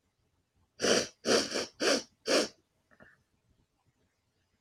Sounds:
Sniff